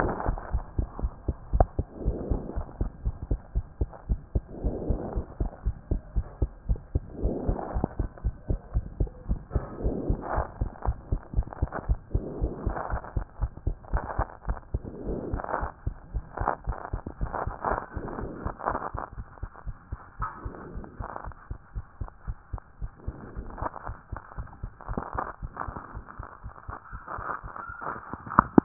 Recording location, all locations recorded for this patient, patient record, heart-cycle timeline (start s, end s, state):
pulmonary valve (PV)
aortic valve (AV)+pulmonary valve (PV)+tricuspid valve (TV)+mitral valve (MV)
#Age: Child
#Sex: Female
#Height: 116.0 cm
#Weight: 19.1 kg
#Pregnancy status: False
#Murmur: Absent
#Murmur locations: nan
#Most audible location: nan
#Systolic murmur timing: nan
#Systolic murmur shape: nan
#Systolic murmur grading: nan
#Systolic murmur pitch: nan
#Systolic murmur quality: nan
#Diastolic murmur timing: nan
#Diastolic murmur shape: nan
#Diastolic murmur grading: nan
#Diastolic murmur pitch: nan
#Diastolic murmur quality: nan
#Outcome: Normal
#Campaign: 2014 screening campaign
0.00	0.18	S1
0.18	0.26	systole
0.26	0.40	S2
0.40	0.52	diastole
0.52	0.66	S1
0.66	0.76	systole
0.76	0.88	S2
0.88	1.00	diastole
1.00	1.12	S1
1.12	1.26	systole
1.26	1.36	S2
1.36	1.52	diastole
1.52	1.68	S1
1.68	1.78	systole
1.78	1.88	S2
1.88	2.04	diastole
2.04	2.18	S1
2.18	2.28	systole
2.28	2.42	S2
2.42	2.56	diastole
2.56	2.68	S1
2.68	2.78	systole
2.78	2.92	S2
2.92	3.04	diastole
3.04	3.18	S1
3.18	3.30	systole
3.30	3.40	S2
3.40	3.54	diastole
3.54	3.66	S1
3.66	3.76	systole
3.76	3.90	S2
3.90	4.06	diastole
4.06	4.20	S1
4.20	4.30	systole
4.30	4.44	S2
4.44	4.62	diastole
4.62	4.78	S1
4.78	4.86	systole
4.86	5.00	S2
5.00	5.14	diastole
5.14	5.26	S1
5.26	5.40	systole
5.40	5.52	S2
5.52	5.66	diastole
5.66	5.78	S1
5.78	5.88	systole
5.88	6.02	S2
6.02	6.14	diastole
6.14	6.26	S1
6.26	6.38	systole
6.38	6.50	S2
6.50	6.68	diastole
6.68	6.82	S1
6.82	6.92	systole
6.92	7.06	S2
7.06	7.22	diastole
7.22	7.36	S1
7.36	7.46	systole
7.46	7.60	S2
7.60	7.74	diastole
7.74	7.88	S1
7.88	7.98	systole
7.98	8.10	S2
8.10	8.24	diastole
8.24	8.36	S1
8.36	8.48	systole
8.48	8.60	S2
8.60	8.74	diastole
8.74	8.88	S1
8.88	8.98	systole
8.98	9.12	S2
9.12	9.28	diastole
9.28	9.42	S1
9.42	9.52	systole
9.52	9.66	S2
9.66	9.80	diastole
9.80	9.96	S1
9.96	10.06	systole
10.06	10.20	S2
10.20	10.34	diastole
10.34	10.48	S1
10.48	10.58	systole
10.58	10.70	S2
10.70	10.86	diastole
10.86	10.98	S1
10.98	11.08	systole
11.08	11.20	S2
11.20	11.34	diastole
11.34	11.46	S1
11.46	11.58	systole
11.58	11.70	S2
11.70	11.86	diastole
11.86	12.00	S1
12.00	12.12	systole
12.12	12.26	S2
12.26	12.40	diastole
12.40	12.54	S1
12.54	12.64	systole
12.64	12.78	S2
12.78	12.90	diastole
12.90	13.02	S1
13.02	13.14	systole
13.14	13.26	S2
13.26	13.40	diastole
13.40	13.52	S1
13.52	13.64	systole
13.64	13.78	S2
13.78	13.92	diastole
13.92	14.04	S1
14.04	14.16	systole
14.16	14.28	S2
14.28	14.46	diastole
14.46	14.58	S1
14.58	14.70	systole
14.70	14.84	S2
14.84	15.02	diastole
15.02	15.18	S1
15.18	15.30	systole
15.30	15.44	S2
15.44	15.60	diastole
15.60	15.70	S1
15.70	15.86	systole
15.86	15.98	S2
15.98	16.14	diastole
16.14	16.24	S1
16.24	16.38	systole
16.38	16.48	S2
16.48	16.66	diastole
16.66	16.78	S1
16.78	16.92	systole
16.92	17.02	S2
17.02	17.20	diastole
17.20	17.34	S1
17.34	17.44	systole
17.44	17.54	S2
17.54	17.70	diastole
17.70	17.80	S1
17.80	17.94	systole
17.94	18.04	S2
18.04	18.18	diastole
18.18	18.30	S1
18.30	18.44	systole
18.44	18.54	S2
18.54	18.70	diastole
18.70	18.80	S1
18.80	18.94	systole
18.94	19.02	S2
19.02	19.18	diastole
19.18	19.26	S1
19.26	19.42	systole
19.42	19.50	S2
19.50	19.68	diastole
19.68	19.76	S1
19.76	19.92	systole
19.92	20.02	S2
20.02	20.20	diastole
20.20	20.28	S1
20.28	20.46	systole
20.46	20.56	S2
20.56	20.74	diastole
20.74	20.84	S1
20.84	21.00	systole
21.00	21.08	S2
21.08	21.26	diastole
21.26	21.34	S1
21.34	21.50	systole
21.50	21.60	S2
21.60	21.76	diastole
21.76	21.84	S1
21.84	22.00	systole
22.00	22.08	S2
22.08	22.26	diastole
22.26	22.36	S1
22.36	22.54	systole
22.54	22.60	S2
22.60	22.82	diastole
22.82	22.90	S1
22.90	23.06	systole
23.06	23.18	S2
23.18	23.36	diastole
23.36	23.48	S1
23.48	23.60	systole
23.60	23.72	S2
23.72	23.88	diastole
23.88	23.96	S1
23.96	24.12	systole
24.12	24.22	S2
24.22	24.38	diastole
24.38	24.46	S1
24.46	24.64	systole
24.64	24.72	S2
24.72	24.90	diastole
24.90	25.02	S1
25.02	25.14	systole
25.14	25.26	S2
25.26	25.44	diastole
25.44	25.52	S1
25.52	25.68	systole
25.68	25.76	S2
25.76	25.94	diastole
25.94	26.02	S1
26.02	26.20	systole
26.20	26.28	S2
26.28	26.46	diastole
26.46	26.52	S1
26.52	26.68	systole
26.68	26.78	S2
26.78	26.94	diastole
26.94	27.00	S1
27.00	27.18	systole
27.18	27.24	S2
27.24	27.44	diastole
27.44	27.50	S1
27.50	27.64	systole
27.64	27.70	S2
27.70	27.88	diastole
27.88	27.96	S1
27.96	28.10	systole
28.10	28.18	S2
28.18	28.34	diastole
28.34	28.48	S1
28.48	28.56	systole
28.56	28.64	S2